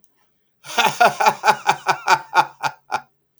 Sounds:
Laughter